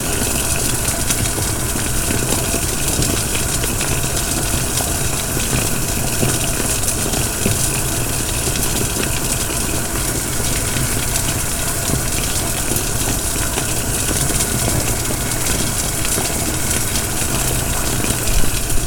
Is thunder rumbling?
no